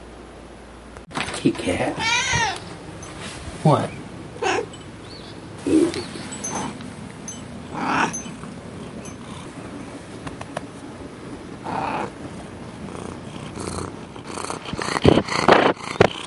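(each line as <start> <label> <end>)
1.1 A person is talking to a cat. 1.9
2.0 A cat reacts. 2.6
3.5 A man speaks. 4.1
4.4 A cat makes sounds. 8.3
11.7 A person exhales. 12.2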